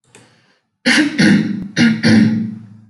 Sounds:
Throat clearing